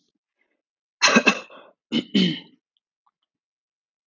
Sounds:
Throat clearing